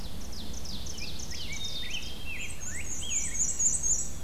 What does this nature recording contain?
Ovenbird, Rose-breasted Grosbeak, Black-capped Chickadee, Black-and-white Warbler, Wood Thrush